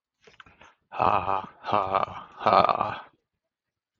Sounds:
Laughter